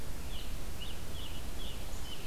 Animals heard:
Scarlet Tanager (Piranga olivacea)

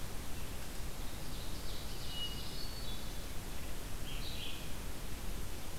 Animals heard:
Red-eyed Vireo (Vireo olivaceus)
Ovenbird (Seiurus aurocapilla)
Hermit Thrush (Catharus guttatus)

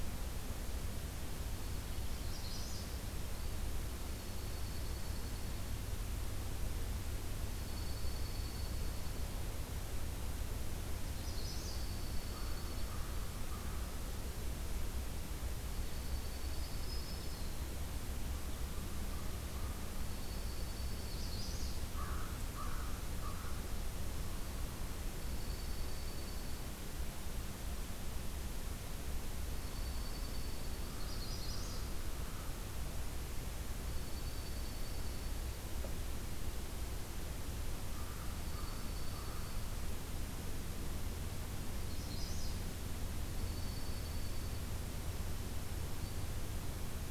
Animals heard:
Magnolia Warbler (Setophaga magnolia)
Dark-eyed Junco (Junco hyemalis)
American Crow (Corvus brachyrhynchos)
Black-throated Green Warbler (Setophaga virens)

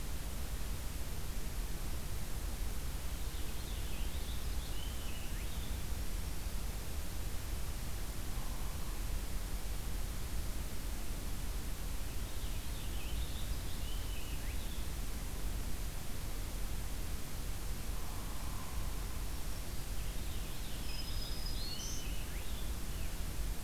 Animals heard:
Hairy Woodpecker (Dryobates villosus)
Black-throated Green Warbler (Setophaga virens)
Purple Finch (Haemorhous purpureus)

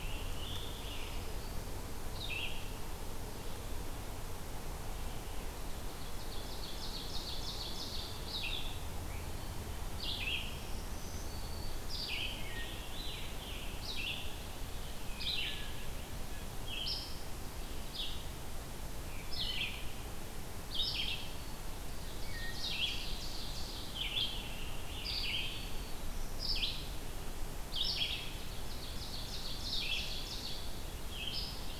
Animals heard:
Scarlet Tanager (Piranga olivacea)
Ovenbird (Seiurus aurocapilla)
Black-throated Green Warbler (Setophaga virens)
Wood Thrush (Hylocichla mustelina)
Red-eyed Vireo (Vireo olivaceus)

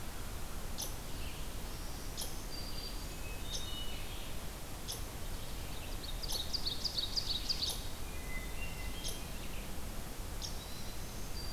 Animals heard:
Hermit Thrush (Catharus guttatus)
Red-eyed Vireo (Vireo olivaceus)
Ovenbird (Seiurus aurocapilla)
Black-throated Green Warbler (Setophaga virens)
unknown mammal

